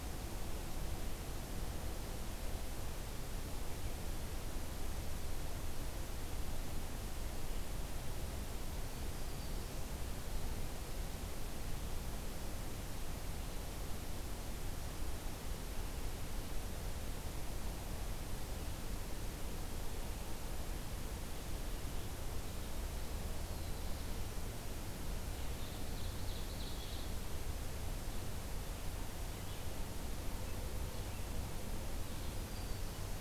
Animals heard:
Black-throated Green Warbler (Setophaga virens), Red-eyed Vireo (Vireo olivaceus), Black-throated Blue Warbler (Setophaga caerulescens), Ovenbird (Seiurus aurocapilla)

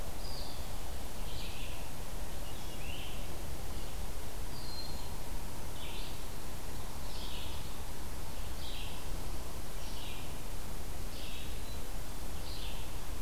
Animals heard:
Red-eyed Vireo (Vireo olivaceus), Great Crested Flycatcher (Myiarchus crinitus), Broad-winged Hawk (Buteo platypterus)

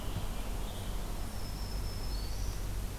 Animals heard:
Black-throated Green Warbler (Setophaga virens), American Robin (Turdus migratorius)

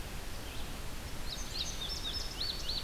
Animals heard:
Indigo Bunting (Passerina cyanea), Red-eyed Vireo (Vireo olivaceus)

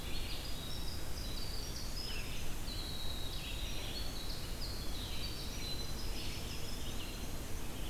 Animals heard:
Red-eyed Vireo (Vireo olivaceus), Winter Wren (Troglodytes hiemalis), Eastern Wood-Pewee (Contopus virens)

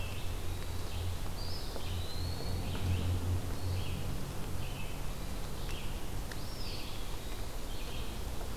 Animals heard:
Red-eyed Vireo (Vireo olivaceus), Eastern Wood-Pewee (Contopus virens)

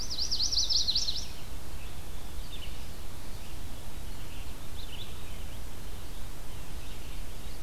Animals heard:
Chestnut-sided Warbler (Setophaga pensylvanica), Red-eyed Vireo (Vireo olivaceus)

